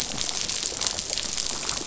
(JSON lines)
{"label": "biophony, dolphin", "recorder": "SoundTrap 500"}